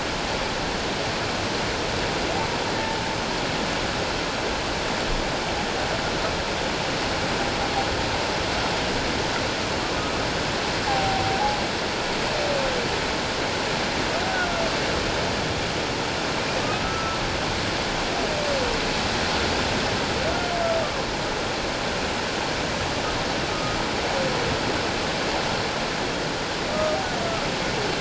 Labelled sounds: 10.9	11.4	humpback whale, 0.78 to 0.88 kHz
16.8	17.2	humpback whale, 1.3 to 1.4 kHz
23.5	23.8	humpback whale, 1.2 to 1.3 kHz

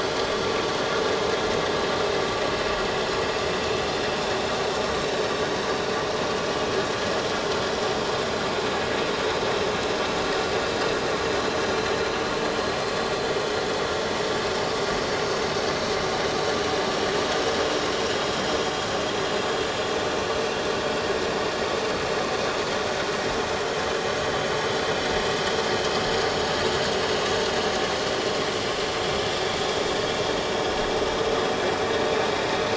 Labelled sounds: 4.9	5.2	vessel noise, 3.7 to 4.0 kHz
18.1	18.4	vessel noise, 6.8 to 6.9 kHz

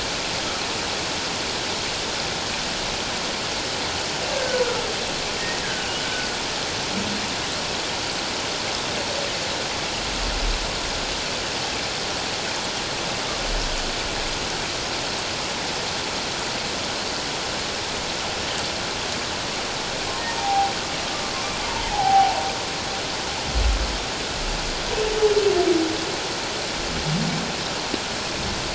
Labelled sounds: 4.4	4.8	humpback whale, 1.2 to 1.7 kHz
5.6	5.9	humpback whale, 1.5 to 1.8 kHz
20.4	20.7	humpback whale, 0.78 to 0.94 kHz
21.9	22.4	humpback whale, 0.78 to 1.0 kHz

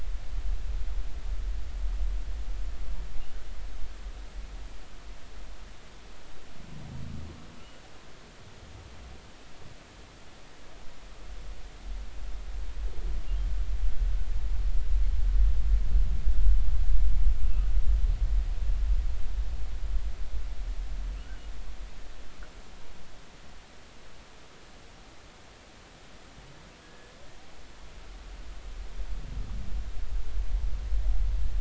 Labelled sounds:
26.8	27.1	humpback whale, 1.6 to 1.8 kHz

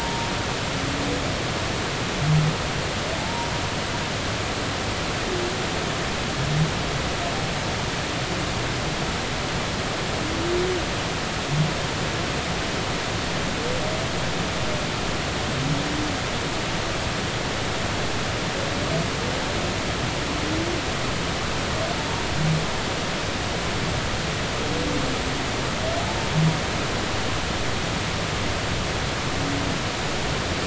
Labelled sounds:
3.2	3.5	humpback whale, 0.80 to 0.99 kHz

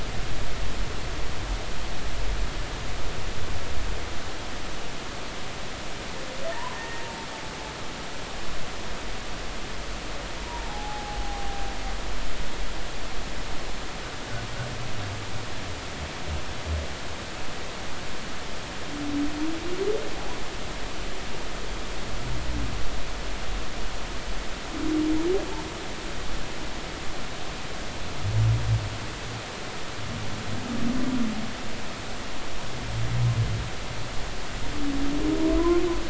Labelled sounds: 6.5	7.0	humpback whale, 0.86 to 1.9 kHz
10.4	11.6	humpback whale, 0.80 to 1.0 kHz
35.6	35.8	humpback whale, 0.96 to 1.1 kHz

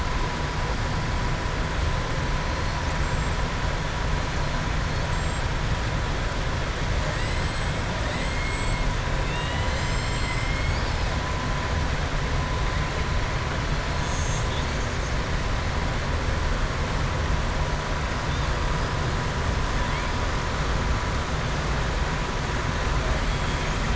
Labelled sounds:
2.8	3.4	killer whale, southern resident, 6.6 to 8.0 kHz
7.0	7.8	killer whale, southern resident, 6.9 to 8.0 kHz

